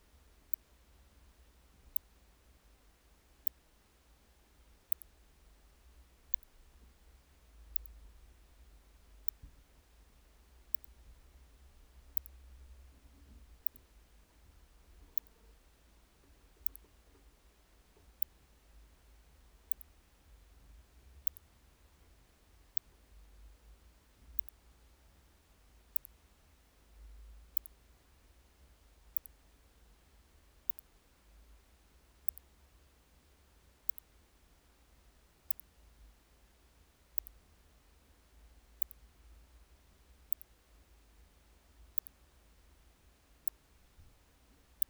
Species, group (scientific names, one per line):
Leptophyes laticauda
Orthoptera